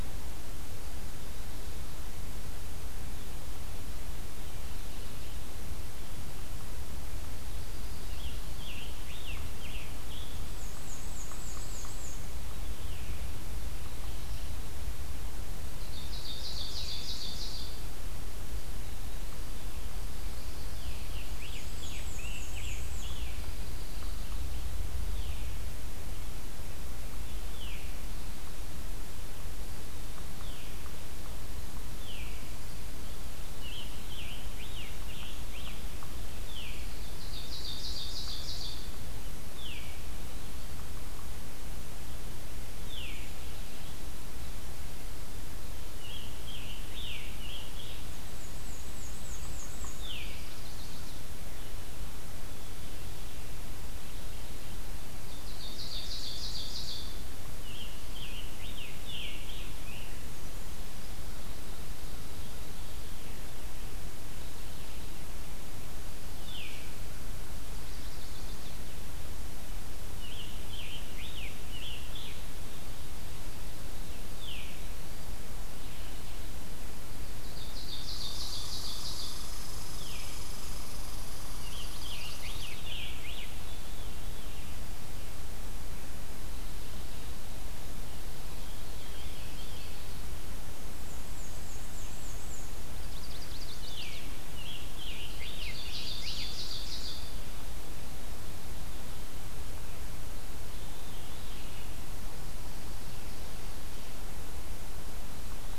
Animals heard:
Ovenbird (Seiurus aurocapilla), Scarlet Tanager (Piranga olivacea), Chestnut-sided Warbler (Setophaga pensylvanica), Veery (Catharus fuscescens), Red Squirrel (Tamiasciurus hudsonicus), Pine Warbler (Setophaga pinus), Black-and-white Warbler (Mniotilta varia)

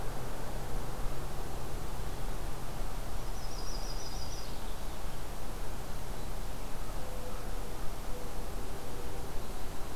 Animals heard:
Yellow-rumped Warbler (Setophaga coronata)

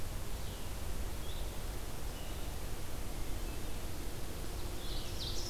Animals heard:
Ovenbird (Seiurus aurocapilla), Hermit Thrush (Catharus guttatus), Blue-headed Vireo (Vireo solitarius)

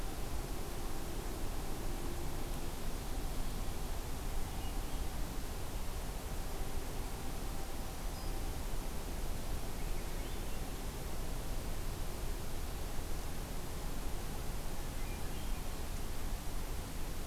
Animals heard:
Black-throated Green Warbler (Setophaga virens), Swainson's Thrush (Catharus ustulatus)

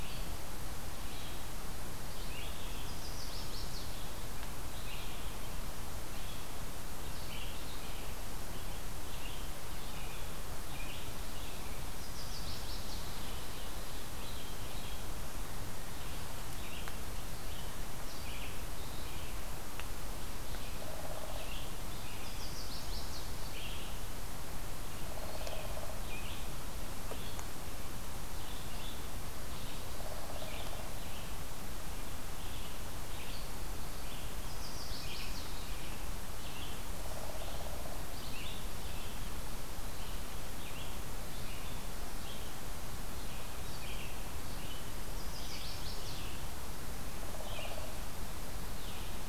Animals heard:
Red-eyed Vireo (Vireo olivaceus), Chestnut-sided Warbler (Setophaga pensylvanica)

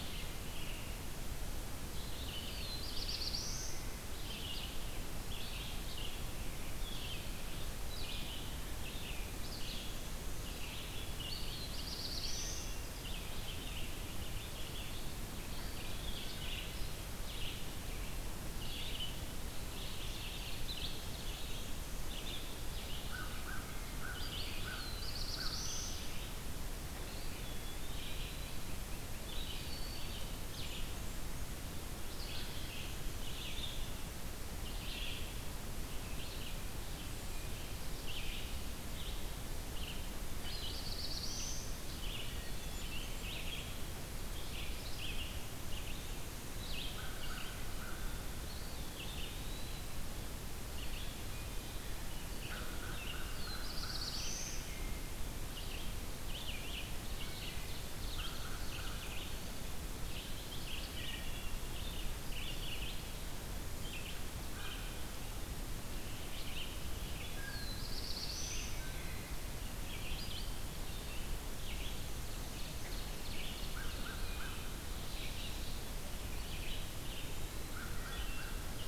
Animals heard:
Black-and-white Warbler (Mniotilta varia), American Crow (Corvus brachyrhynchos), Red-eyed Vireo (Vireo olivaceus), Wood Thrush (Hylocichla mustelina), Eastern Wood-Pewee (Contopus virens), Blackburnian Warbler (Setophaga fusca), Ovenbird (Seiurus aurocapilla), Black-throated Blue Warbler (Setophaga caerulescens)

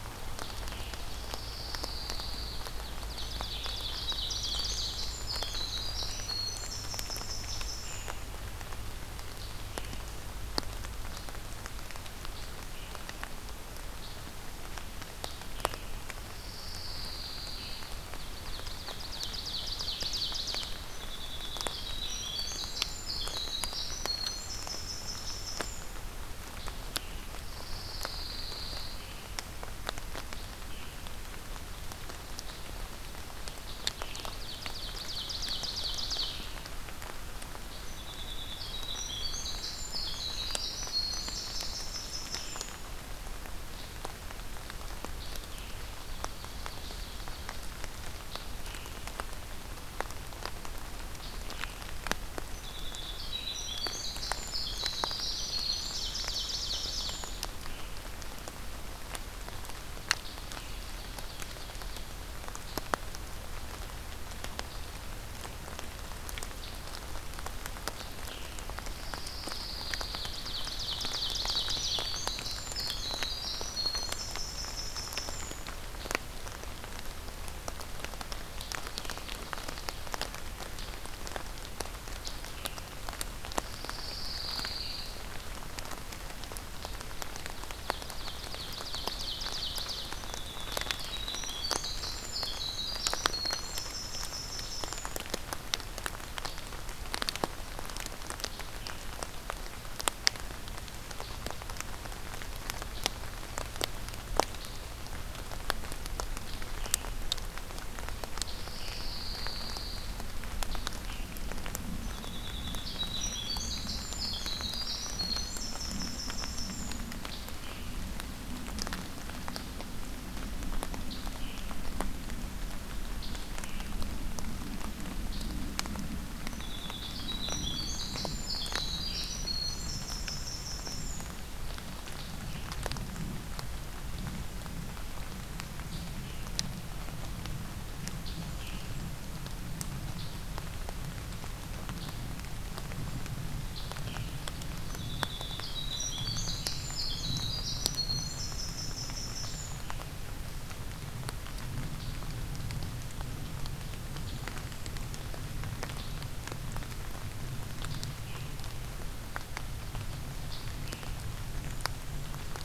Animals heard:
Ovenbird (Seiurus aurocapilla), Pine Warbler (Setophaga pinus), Winter Wren (Troglodytes hiemalis), Scarlet Tanager (Piranga olivacea)

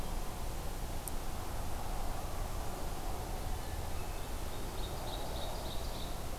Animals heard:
Ovenbird (Seiurus aurocapilla)

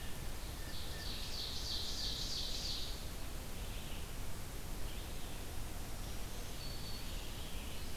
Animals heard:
Tufted Titmouse (Baeolophus bicolor), Red-eyed Vireo (Vireo olivaceus), Black-throated Green Warbler (Setophaga virens), Ovenbird (Seiurus aurocapilla)

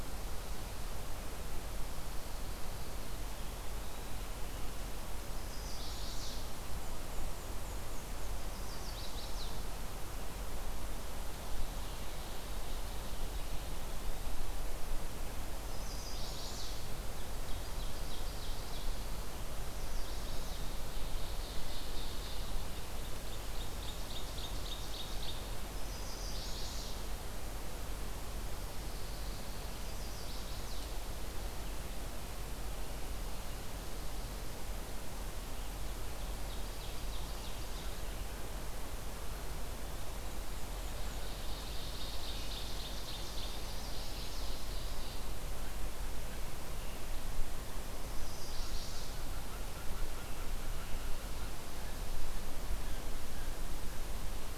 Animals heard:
Ovenbird (Seiurus aurocapilla), Black-and-white Warbler (Mniotilta varia), unknown mammal, Chestnut-sided Warbler (Setophaga pensylvanica), Pine Warbler (Setophaga pinus)

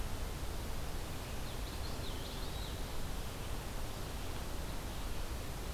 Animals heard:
Common Yellowthroat (Geothlypis trichas), Eastern Wood-Pewee (Contopus virens)

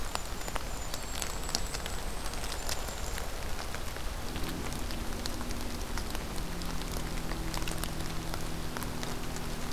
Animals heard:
Golden-crowned Kinglet (Regulus satrapa), Black-throated Green Warbler (Setophaga virens)

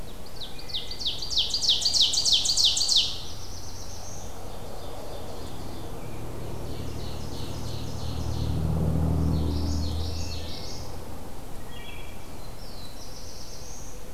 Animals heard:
Common Yellowthroat (Geothlypis trichas), Black-throated Blue Warbler (Setophaga caerulescens), Ovenbird (Seiurus aurocapilla), American Robin (Turdus migratorius), Wood Thrush (Hylocichla mustelina)

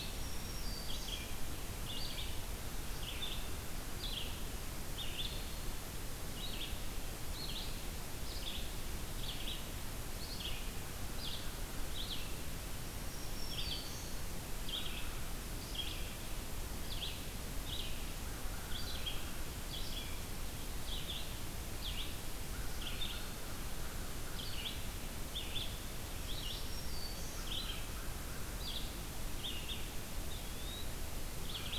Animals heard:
American Crow (Corvus brachyrhynchos), Eastern Wood-Pewee (Contopus virens), Black-throated Green Warbler (Setophaga virens), Red-eyed Vireo (Vireo olivaceus)

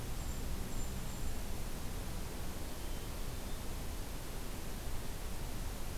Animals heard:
Hermit Thrush (Catharus guttatus), Golden-crowned Kinglet (Regulus satrapa)

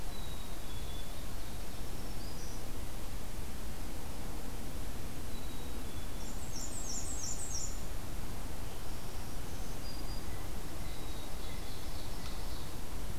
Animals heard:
Black-and-white Warbler (Mniotilta varia), Blue Jay (Cyanocitta cristata), Black-throated Green Warbler (Setophaga virens), Black-capped Chickadee (Poecile atricapillus), Ovenbird (Seiurus aurocapilla)

